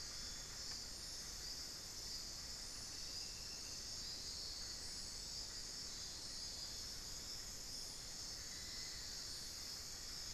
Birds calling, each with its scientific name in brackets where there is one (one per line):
Amazonian Barred-Woodcreeper (Dendrocolaptes certhia)
unidentified bird